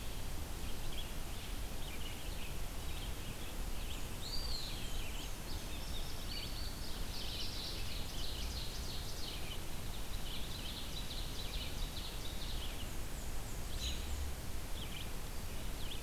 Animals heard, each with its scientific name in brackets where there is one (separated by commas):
Red-eyed Vireo (Vireo olivaceus), Eastern Wood-Pewee (Contopus virens), Indigo Bunting (Passerina cyanea), Ovenbird (Seiurus aurocapilla), Black-and-white Warbler (Mniotilta varia)